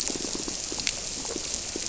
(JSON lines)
{"label": "biophony, squirrelfish (Holocentrus)", "recorder": "SoundTrap 300"}